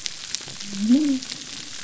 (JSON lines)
{"label": "biophony", "recorder": "SoundTrap 300"}